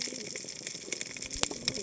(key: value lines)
label: biophony, cascading saw
recorder: HydroMoth